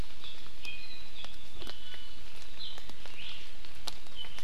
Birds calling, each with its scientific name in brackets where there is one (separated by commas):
Iiwi (Drepanis coccinea)